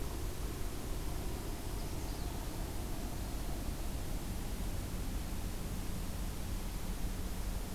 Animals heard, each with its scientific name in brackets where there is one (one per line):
Magnolia Warbler (Setophaga magnolia)